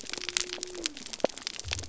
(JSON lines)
{"label": "biophony", "recorder": "SoundTrap 300"}